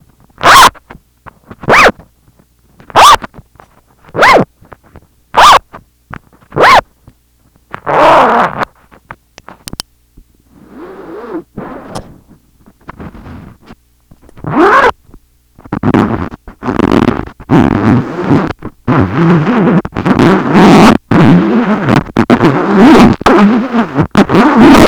How is the material fastened together?
lock